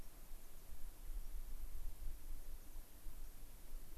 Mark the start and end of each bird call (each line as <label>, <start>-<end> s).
White-crowned Sparrow (Zonotrichia leucophrys), 0.0-0.1 s
American Pipit (Anthus rubescens), 0.3-0.6 s